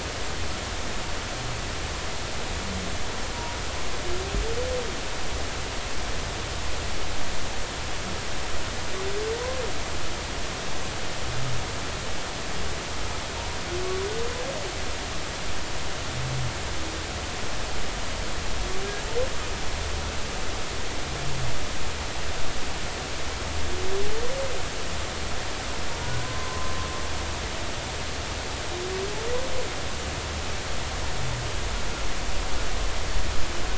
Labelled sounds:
26.2	26.7	humpback whale, 0.99 to 1.1 kHz

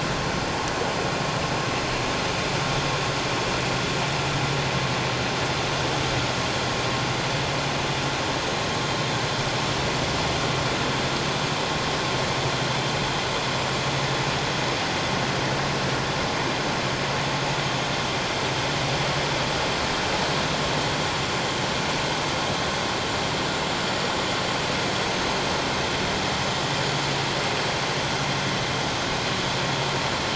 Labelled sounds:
25.1	25.4	vessel noise, 6.1 to 6.5 kHz

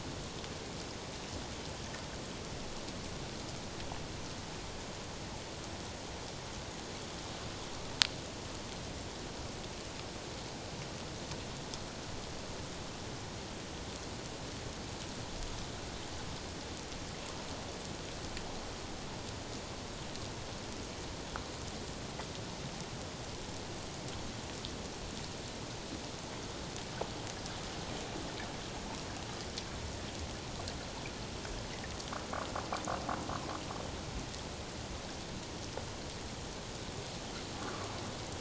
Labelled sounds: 37.6	37.9	water noise, 1.0 to 1.5 kHz

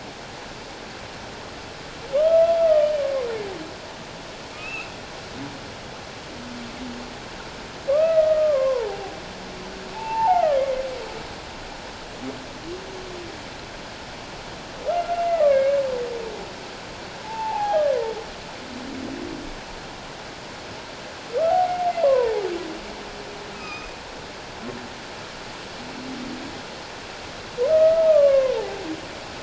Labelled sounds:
2.1	2.9	humpback whale, 1.0 to 1.4 kHz
4.5	4.9	humpback whale, 2.3 to 2.8 kHz
7.9	9.2	humpback whale, 0.78 to 2.0 kHz
9.9	10.6	humpback whale, 0.78 to 1.5 kHz
14.9	15.8	humpback whale, 1.1 to 2.5 kHz
17.2	18.1	humpback whale, 0.78 to 2.2 kHz
21.5	22.4	humpback whale, 0.78 to 1.2 kHz
23.5	23.9	humpback whale, 1.2 to 5.1 kHz
27.7	28.6	humpback whale, 0.97 to 2.3 kHz

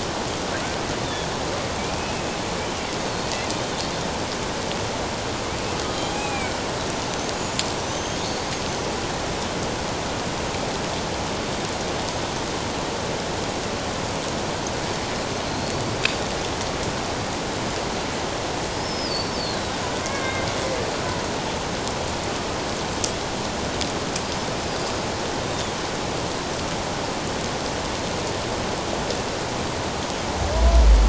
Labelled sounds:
1.0	2.2	killer whale, Bigg's (transient), 2.2 to 3.8 kHz
6.1	6.6	killer whale, Bigg's (transient), 2.2 to 2.6 kHz
7.8	8.9	killer whale, Bigg's (transient), 2.9 to 6.6 kHz
15.5	15.8	killer whale, Bigg's (transient), 4.1 to 4.6 kHz
18.8	20.5	killer whale, Bigg's (transient), 1.5 to 5.5 kHz

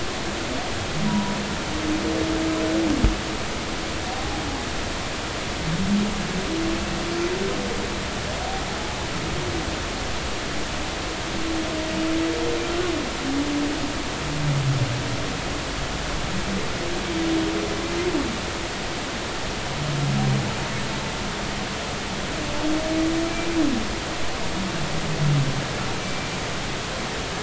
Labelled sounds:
1.1	1.3	humpback whale, 0.90 to 1.0 kHz
4.1	4.4	humpback whale, 0.80 to 0.86 kHz
26.0	26.3	humpback whale, 2.3 to 2.4 kHz

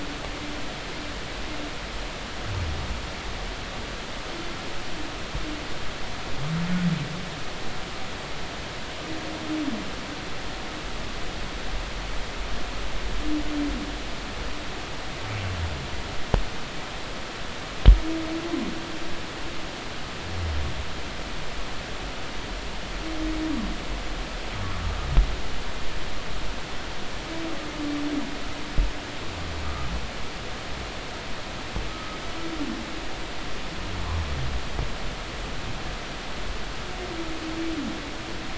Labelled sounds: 31.9	32.2	humpback whale, 1.2 to 1.4 kHz

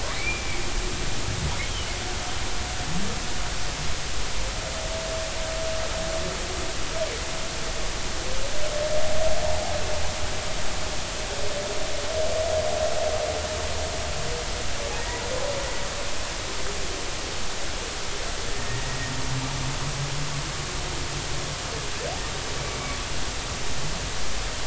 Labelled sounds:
0.2	0.6	humpback whale, 2.1 to 2.5 kHz
1.7	1.9	humpback whale, 2.9 to 3.3 kHz
15.0	15.2	humpback whale, 1.8 to 2.0 kHz
18.5	18.8	humpback whale, 1.8 to 1.9 kHz

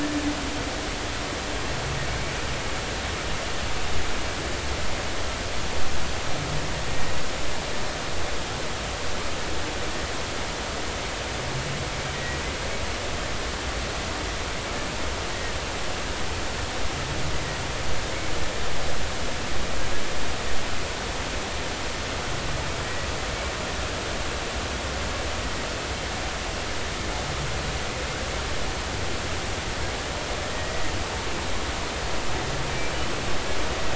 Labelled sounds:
12.1	12.4	humpback whale, 1.9 to 2.0 kHz
22.8	23.1	humpback whale, 1.9 to 2.0 kHz
30.4	30.8	humpback whale, 1.8 to 2.0 kHz
32.7	32.9	humpback whale, 2.3 to 2.5 kHz

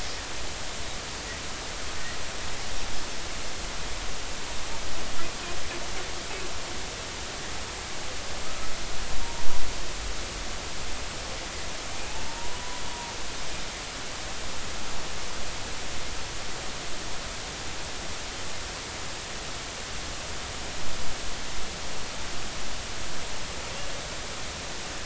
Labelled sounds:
8.4	8.7	humpback whale, 1.2 to 1.4 kHz
12.2	12.8	humpback whale, 0.86 to 1.0 kHz

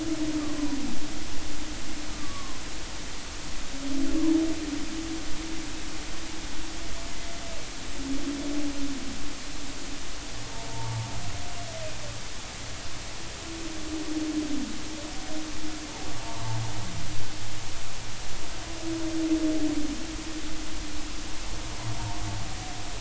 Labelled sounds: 2.1	2.6	humpback whale, 0.99 to 1.2 kHz
10.7	11.1	humpback whale, 0.83 to 0.99 kHz

